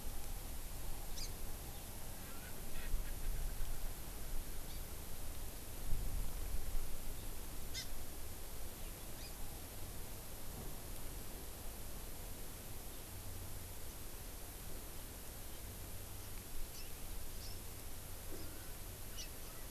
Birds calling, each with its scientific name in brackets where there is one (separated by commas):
Erckel's Francolin (Pternistis erckelii), House Finch (Haemorhous mexicanus), Hawaii Amakihi (Chlorodrepanis virens)